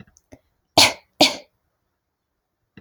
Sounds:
Cough